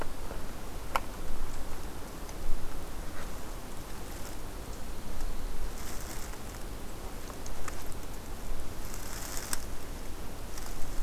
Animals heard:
forest ambience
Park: Hubbard Brook Experimental Forest